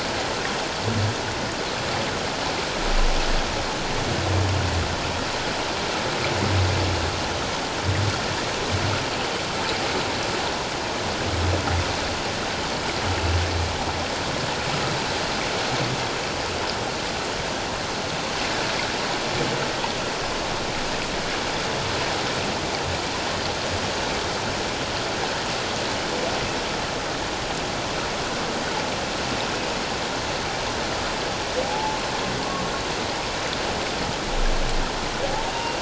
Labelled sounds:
31.6	32.0	humpback whale, 0.78 to 0.94 kHz
35.5	35.7	humpback whale, 2.7 to 2.8 kHz

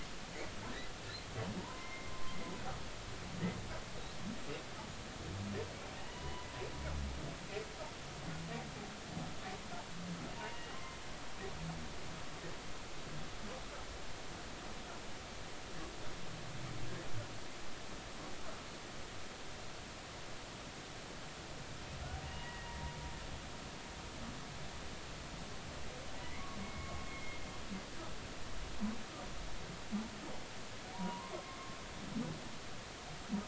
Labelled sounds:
1.6	2.4	humpback whale, 0.90 to 2.2 kHz
6.1	6.5	humpback whale, 0.93 to 2.0 kHz
10.4	10.8	humpback whale, 1.9 to 2.9 kHz
22.2	22.7	humpback whale, 0.90 to 2.9 kHz
26.2	27.4	humpback whale, 1.1 to 2.3 kHz
30.9	31.6	humpback whale, 0.86 to 1.2 kHz

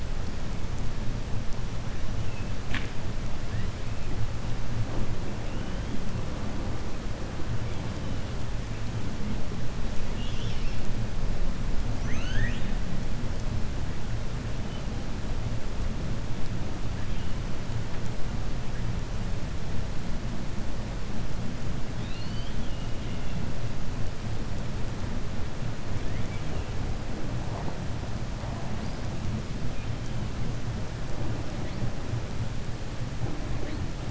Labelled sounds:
11.9	12.7	killer whale, 1.3 to 6.4 kHz
21.9	22.9	killer whale, 2.6 to 4.7 kHz

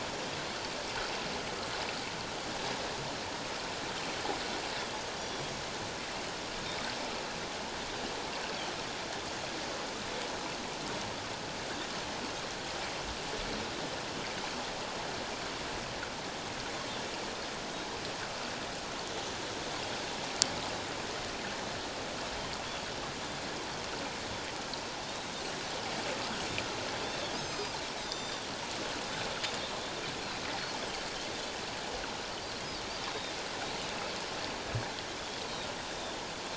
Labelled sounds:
5.2	5.4	Pacific white-sided dolphin, 5.6 to 5.8 kHz
25.0	25.3	Pacific white-sided dolphin, 3.6 to 3.9 kHz
27.0	28.4	Pacific white-sided dolphin, 3.2 to 7.9 kHz
33.1	33.4	Pacific white-sided dolphin, 3.5 to 3.8 kHz
35.9	36.2	Pacific white-sided dolphin, 3.4 to 3.7 kHz

